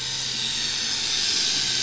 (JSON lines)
{"label": "anthrophony, boat engine", "recorder": "SoundTrap 500"}